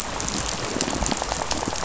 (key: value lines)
label: biophony, rattle
recorder: SoundTrap 500